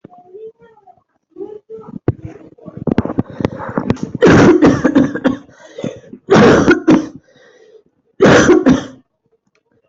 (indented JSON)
{
  "expert_labels": [
    {
      "quality": "good",
      "cough_type": "wet",
      "dyspnea": false,
      "wheezing": false,
      "stridor": false,
      "choking": false,
      "congestion": false,
      "nothing": true,
      "diagnosis": "lower respiratory tract infection",
      "severity": "severe"
    }
  ],
  "age": 46,
  "gender": "female",
  "respiratory_condition": true,
  "fever_muscle_pain": false,
  "status": "healthy"
}